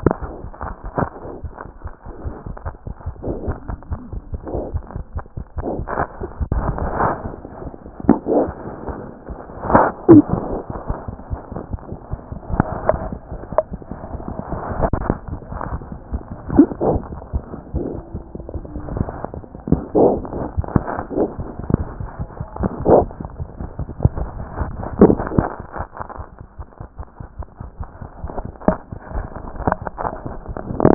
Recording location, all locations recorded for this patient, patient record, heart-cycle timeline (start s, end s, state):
mitral valve (MV)
aortic valve (AV)+mitral valve (MV)
#Age: Neonate
#Sex: Male
#Height: 47.0 cm
#Weight: 2.6 kg
#Pregnancy status: False
#Murmur: Unknown
#Murmur locations: nan
#Most audible location: nan
#Systolic murmur timing: nan
#Systolic murmur shape: nan
#Systolic murmur grading: nan
#Systolic murmur pitch: nan
#Systolic murmur quality: nan
#Diastolic murmur timing: nan
#Diastolic murmur shape: nan
#Diastolic murmur grading: nan
#Diastolic murmur pitch: nan
#Diastolic murmur quality: nan
#Outcome: Abnormal
#Campaign: 2014 screening campaign
0.00	1.37	unannotated
1.37	1.44	diastole
1.44	1.52	S1
1.52	1.61	systole
1.61	1.68	S2
1.68	1.84	diastole
1.84	1.92	S1
1.92	2.05	systole
2.05	2.12	S2
2.12	2.24	diastole
2.24	2.34	S1
2.34	2.46	systole
2.46	2.56	S2
2.56	2.66	diastole
2.66	2.74	S1
2.74	2.86	systole
2.86	2.94	S2
2.94	3.08	diastole
3.08	3.14	S1
3.14	3.26	systole
3.26	3.36	S2
3.36	3.46	diastole
3.46	3.56	S1
3.56	3.68	systole
3.68	3.76	S2
3.76	3.90	diastole
3.90	4.00	S1
4.00	4.12	systole
4.12	4.20	S2
4.20	4.31	diastole
4.31	4.39	S1
4.39	4.52	systole
4.52	4.58	S2
4.58	4.72	diastole
4.72	4.82	S1
4.82	4.94	systole
4.94	5.02	S2
5.02	5.16	diastole
5.16	5.24	S1
5.24	5.36	systole
5.36	5.44	S2
5.44	5.58	diastole
5.58	5.62	S1
5.62	5.76	systole
5.76	5.84	S2
5.84	5.98	diastole
5.98	6.06	S1
6.06	6.21	systole
6.21	6.30	S2
6.30	30.94	unannotated